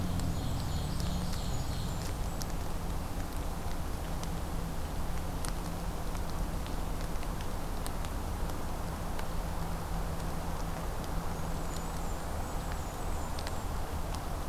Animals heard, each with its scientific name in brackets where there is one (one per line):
Blackburnian Warbler (Setophaga fusca)
Ovenbird (Seiurus aurocapilla)